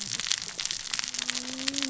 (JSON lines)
{"label": "biophony, cascading saw", "recorder": "SoundTrap 600 or HydroMoth"}